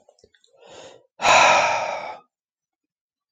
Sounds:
Sigh